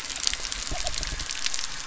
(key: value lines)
label: biophony
recorder: SoundTrap 300

label: anthrophony, boat engine
recorder: SoundTrap 300